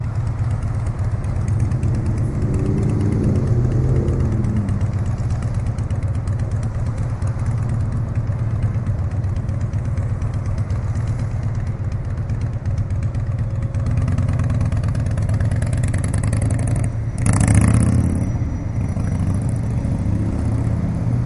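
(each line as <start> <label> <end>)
0.0 A motorcycle is running. 21.3
0.0 Engine noise. 21.3
0.0 Humming. 21.3
0.0 Traffic noise. 21.3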